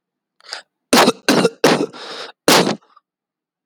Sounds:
Cough